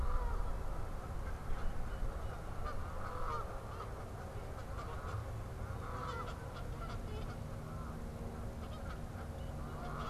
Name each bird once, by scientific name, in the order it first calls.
Branta canadensis, unidentified bird